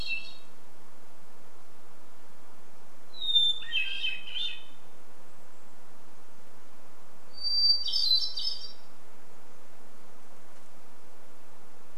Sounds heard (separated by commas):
Hermit Thrush song